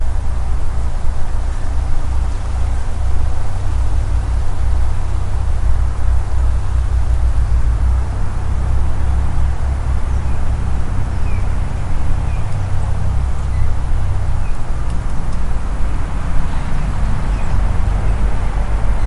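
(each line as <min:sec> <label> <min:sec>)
0:00.0 Multiple natural sounds overlap and grow louder over time. 0:10.9
0:10.9 Nature sounds mixed with birds chirping. 0:15.1
0:15.1 Multiple natural sounds overlap and grow louder over time. 0:19.1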